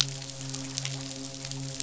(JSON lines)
{"label": "biophony, midshipman", "recorder": "SoundTrap 500"}